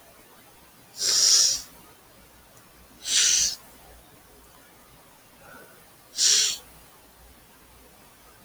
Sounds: Sneeze